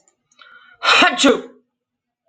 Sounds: Sneeze